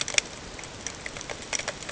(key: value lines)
label: ambient
recorder: HydroMoth